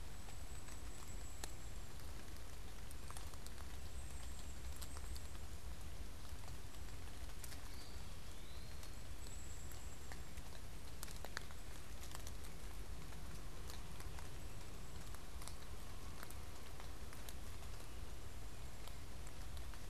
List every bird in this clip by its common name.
unidentified bird, Eastern Wood-Pewee